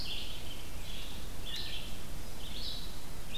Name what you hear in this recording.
Red Squirrel, Red-eyed Vireo